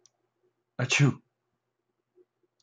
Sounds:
Sneeze